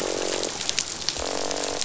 {"label": "biophony, croak", "recorder": "SoundTrap 500"}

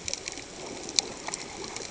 {"label": "ambient", "recorder": "HydroMoth"}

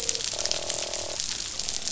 {"label": "biophony, croak", "recorder": "SoundTrap 500"}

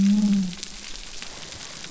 {"label": "biophony", "recorder": "SoundTrap 300"}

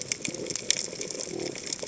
{"label": "biophony", "recorder": "HydroMoth"}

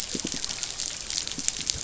{"label": "biophony", "recorder": "SoundTrap 500"}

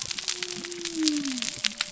{"label": "biophony", "recorder": "SoundTrap 300"}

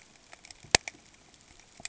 {"label": "ambient", "recorder": "HydroMoth"}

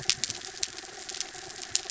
{"label": "anthrophony, mechanical", "recorder": "SoundTrap 300"}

